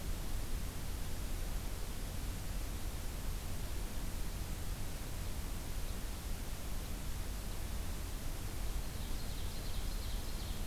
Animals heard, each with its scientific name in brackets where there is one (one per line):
Ovenbird (Seiurus aurocapilla)